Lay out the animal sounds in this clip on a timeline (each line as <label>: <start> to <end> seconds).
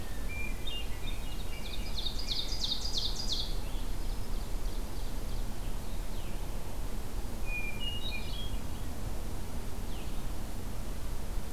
Hermit Thrush (Catharus guttatus): 0.0 to 1.1 seconds
Blue-headed Vireo (Vireo solitarius): 0.0 to 11.5 seconds
American Robin (Turdus migratorius): 0.7 to 2.5 seconds
Ovenbird (Seiurus aurocapilla): 1.2 to 5.6 seconds
Hermit Thrush (Catharus guttatus): 3.9 to 4.6 seconds
Hermit Thrush (Catharus guttatus): 7.4 to 8.6 seconds